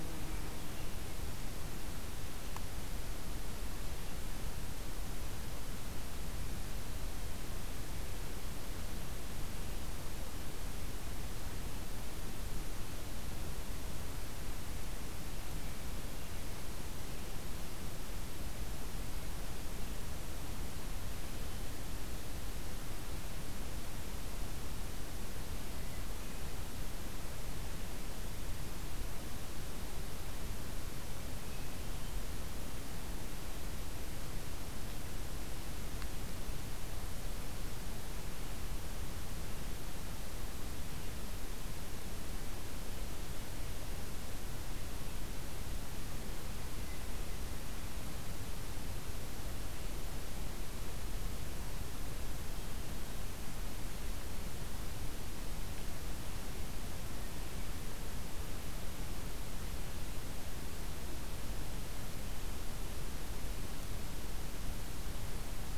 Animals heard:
forest ambience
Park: Katahdin Woods and Waters National Monument